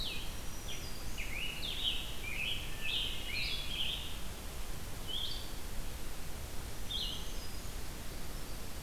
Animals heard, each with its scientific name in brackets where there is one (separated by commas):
Blue-headed Vireo (Vireo solitarius), Black-throated Green Warbler (Setophaga virens), Scarlet Tanager (Piranga olivacea), Hermit Thrush (Catharus guttatus)